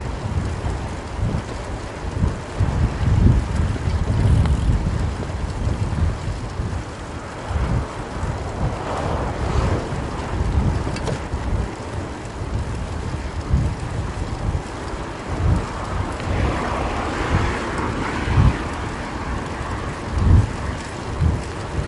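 Passing cars and distant car sounds. 0:00.0 - 0:21.8
Wind steadily and rhythmically wails in the background. 0:00.0 - 0:21.9
Thunder rumbles in the distance. 0:02.6 - 0:06.1
The sound of a bicycle pedal. 0:04.5 - 0:06.1
A steady and silent pattern of a bicycle chain from a moving bicycle. 0:10.4 - 0:21.9

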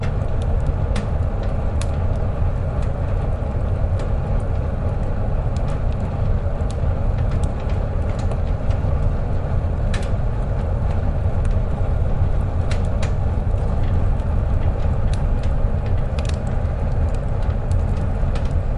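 Fire crackling steadily in a furnace. 0:00.0 - 0:18.8
Wind gusts steadily around a furnace. 0:00.0 - 0:18.8

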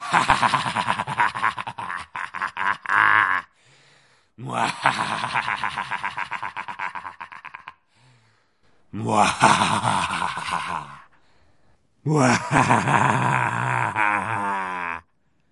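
A man laughs maniacally, followed by a string burst. 0:00.1 - 0:03.5
A man laughs frenziedly with a series of rapid, energetic chuckles fading away. 0:04.4 - 0:07.8
A man laughs in an evil and menacing way, then runs out of air. 0:08.9 - 0:11.2
A man laughs with a villainous tone, beginning with distinct chuckles and ending with a roar. 0:12.0 - 0:15.1

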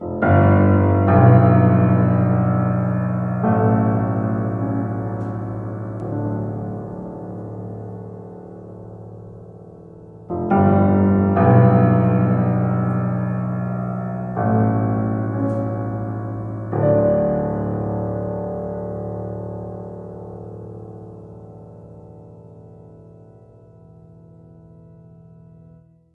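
A nearby piano plays deep single notes. 0:00.0 - 0:06.9
A nearby piano echoes and gradually becomes quieter. 0:06.9 - 0:10.3
A nearby piano plays a few notes, including loud deep tones and some quite high ones. 0:10.3 - 0:18.9
A nearby piano echoes and gradually becomes quieter. 0:18.8 - 0:26.1

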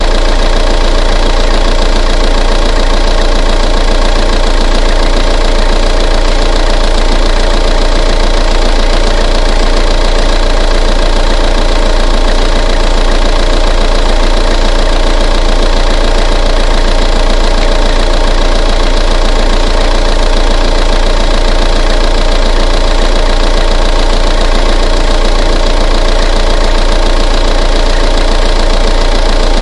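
The steady ticking and soft hum of a diesel engine idling. 0:00.0 - 0:29.6

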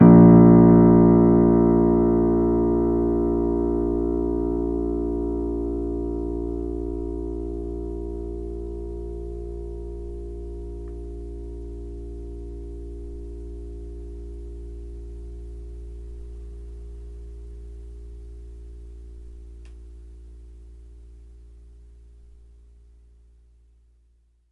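A single piano key is played and its bassy sound slowly fades with reverb. 0:00.0 - 0:24.5

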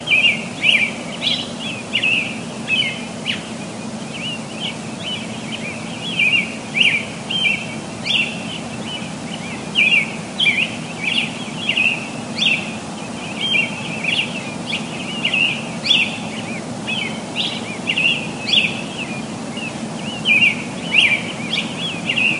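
A robin chirps rhythmically. 0:00.0 - 0:22.4

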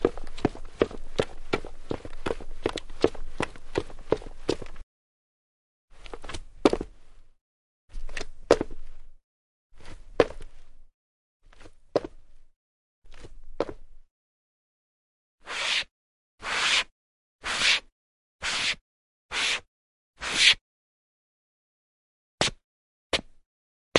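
Footsteps hit a hard surface quickly and rhythmically. 0:00.0 - 0:04.8
A single footstep hits a hard surface loudly. 0:05.9 - 0:11.0
A single soft footstep on a hard surface. 0:11.5 - 0:14.0
A single scrape sounds shrill. 0:15.4 - 0:19.6
A single scrape sounds shrill. 0:20.2 - 0:20.6
A single scuff sound is heard. 0:22.4 - 0:23.3

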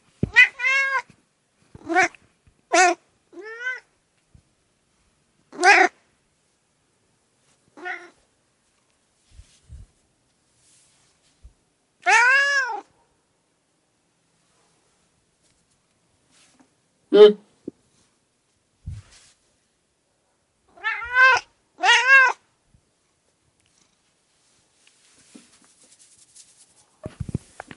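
A low-pitched cat meows with background noise. 0:00.1 - 0:03.9
A cat meows with a high pitch over low background noise. 0:05.3 - 0:06.1
A low-pitched cat meows with background noise. 0:07.7 - 0:08.1
A cat meows with a high pitch over low background noise. 0:11.8 - 0:13.0
An indistinct loud noise, possibly from a human or background. 0:16.9 - 0:17.5
A cat meows with a high pitch over low background noise. 0:20.6 - 0:22.5

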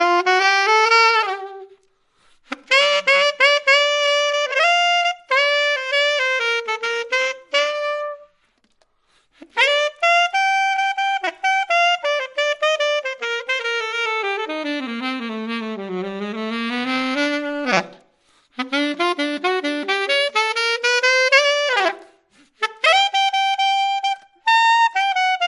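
A high-pitched saxophone is playing. 0:00.0 - 0:25.5

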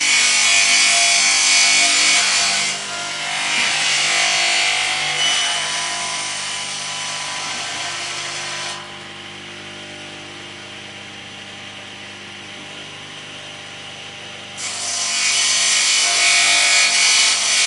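A bench saw is cutting wood. 0:00.0 - 0:08.8
A bench saw is running. 0:08.8 - 0:14.6
A bench saw cutting through wood. 0:14.6 - 0:17.7

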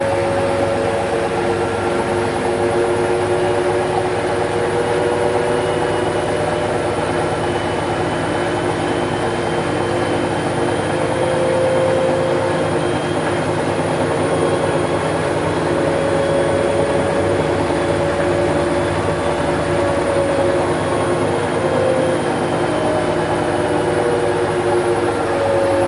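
A washing machine spins at high speed, producing a loud whirring and shaking noise. 0:00.1 - 0:25.9

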